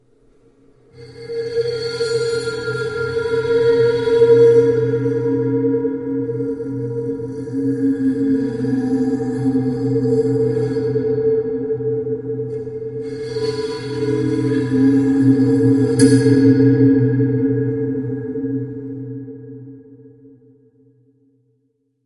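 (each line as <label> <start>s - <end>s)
A freaky, terrifying sound fades in and out eerily. 0.9s - 22.1s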